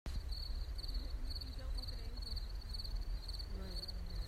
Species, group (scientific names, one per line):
Gryllus pennsylvanicus
Orthoptera